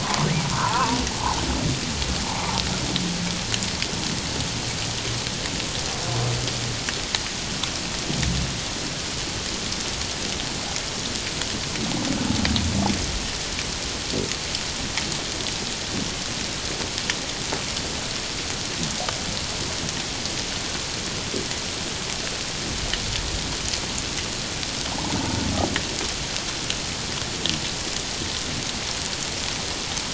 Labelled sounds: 0.0	1.0	humpback whale, 0.81 to 1.6 kHz

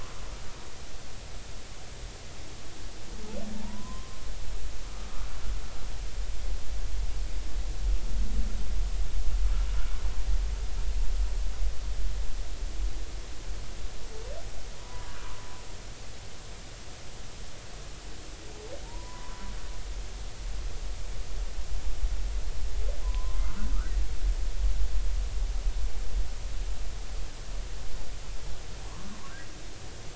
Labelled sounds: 3.5	4.2	humpback whale, 0.86 to 1.1 kHz
14.8	15.1	humpback whale, 0.90 to 1.1 kHz
18.8	19.5	humpback whale, 0.86 to 1.2 kHz
23.0	23.8	humpback whale, 0.93 to 1.6 kHz

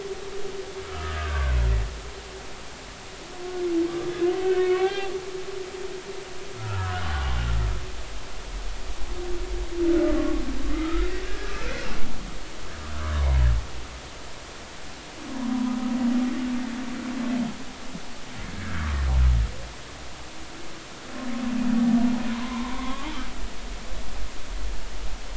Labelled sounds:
0.8	1.6	humpback whale, 1.0 to 1.9 kHz
4.4	5.1	humpback whale, 0.80 to 3.6 kHz
6.5	7.0	humpback whale, 0.90 to 1.5 kHz
10.2	10.4	humpback whale, 1.1 to 1.2 kHz
10.7	11.5	humpback whale, 1.2 to 1.7 kHz
15.5	15.8	humpback whale, 0.93 to 1.1 kHz
18.5	18.9	humpback whale, 1.3 to 1.7 kHz
22.3	23.1	humpback whale, 0.86 to 1.2 kHz

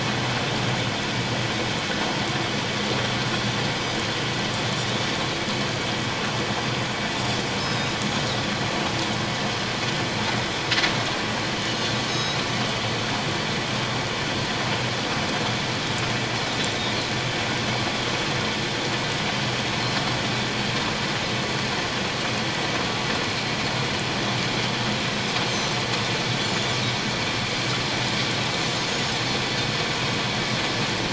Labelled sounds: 7.5	8.0	Pacific white-sided dolphin, 3.6 to 5.3 kHz
12.1	12.4	Pacific white-sided dolphin, 3.8 to 6.6 kHz
25.5	25.8	Pacific white-sided dolphin, 6.0 to 6.4 kHz
28.9	29.2	Pacific white-sided dolphin, 6.4 to 6.9 kHz

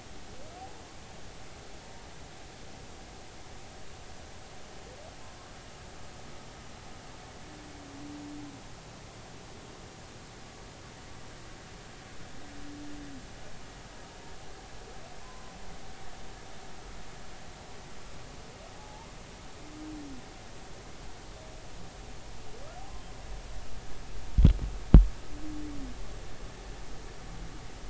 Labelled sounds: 15.2	15.5	humpback whale, 0.93 to 1.1 kHz
18.7	19.1	humpback whale, 0.80 to 0.96 kHz

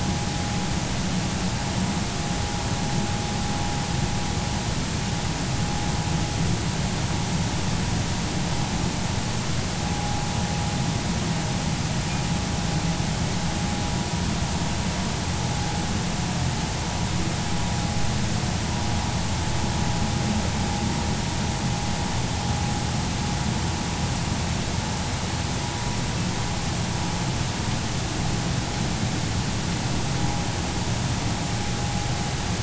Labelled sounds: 9.9	10.2	vessel noise, 0.80 to 0.86 kHz

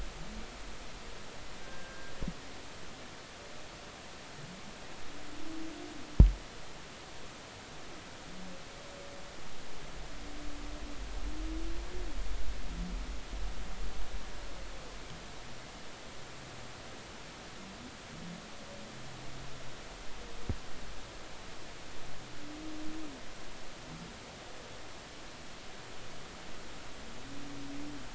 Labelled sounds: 1.6	2.1	humpback whale, 1.5 to 1.7 kHz

